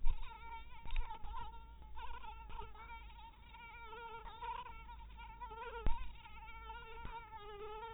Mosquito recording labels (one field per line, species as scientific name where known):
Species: mosquito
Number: one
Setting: cup